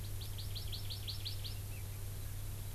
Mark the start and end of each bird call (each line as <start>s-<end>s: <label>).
0.0s-1.6s: Hawaii Amakihi (Chlorodrepanis virens)